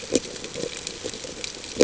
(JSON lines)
{"label": "ambient", "recorder": "HydroMoth"}